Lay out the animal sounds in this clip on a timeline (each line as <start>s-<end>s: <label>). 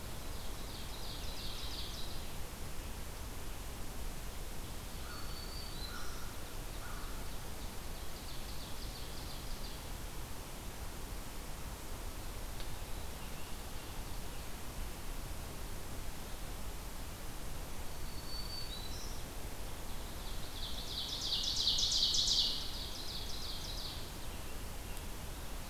0.0s-2.2s: Ovenbird (Seiurus aurocapilla)
4.8s-6.3s: Black-throated Green Warbler (Setophaga virens)
4.9s-7.3s: American Crow (Corvus brachyrhynchos)
6.2s-10.0s: Ovenbird (Seiurus aurocapilla)
12.7s-14.8s: Scarlet Tanager (Piranga olivacea)
17.7s-19.3s: Black-throated Green Warbler (Setophaga virens)
19.9s-24.2s: Ovenbird (Seiurus aurocapilla)